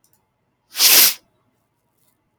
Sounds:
Sniff